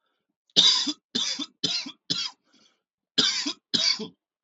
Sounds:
Cough